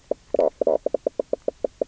{"label": "biophony, knock croak", "recorder": "SoundTrap 300"}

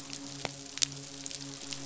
{"label": "biophony, midshipman", "recorder": "SoundTrap 500"}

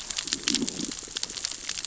{"label": "biophony, growl", "recorder": "SoundTrap 600 or HydroMoth"}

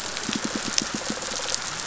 {"label": "biophony, pulse", "recorder": "SoundTrap 500"}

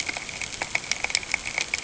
{"label": "ambient", "recorder": "HydroMoth"}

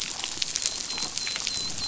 {"label": "biophony, dolphin", "recorder": "SoundTrap 500"}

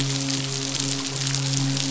{"label": "biophony, midshipman", "recorder": "SoundTrap 500"}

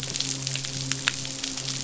{"label": "biophony, midshipman", "recorder": "SoundTrap 500"}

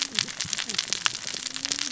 {"label": "biophony, cascading saw", "recorder": "SoundTrap 600 or HydroMoth"}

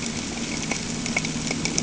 {"label": "anthrophony, boat engine", "recorder": "HydroMoth"}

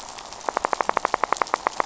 {"label": "biophony, rattle", "recorder": "SoundTrap 500"}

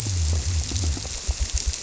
{"label": "biophony", "recorder": "SoundTrap 300"}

